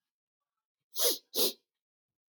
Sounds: Sniff